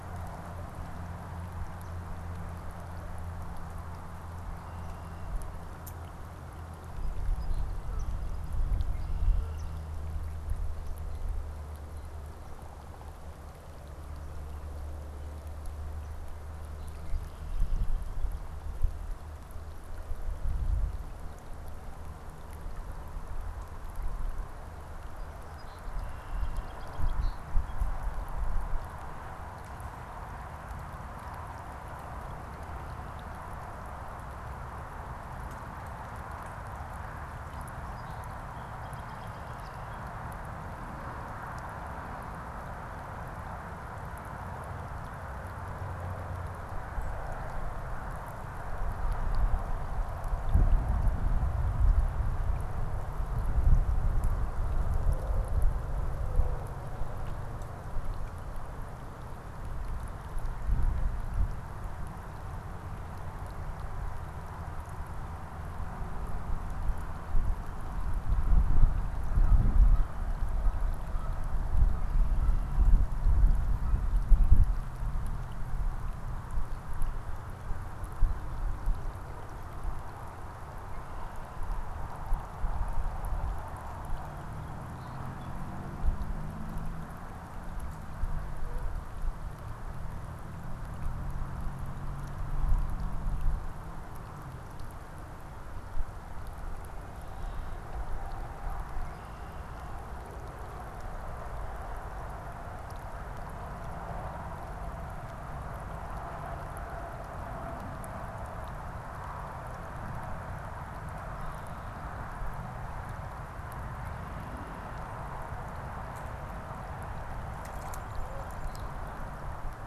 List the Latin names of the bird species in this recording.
Melospiza melodia, Sayornis phoebe, Agelaius phoeniceus